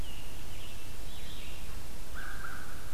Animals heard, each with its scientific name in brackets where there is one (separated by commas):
American Crow (Corvus brachyrhynchos), Red-eyed Vireo (Vireo olivaceus), Scarlet Tanager (Piranga olivacea)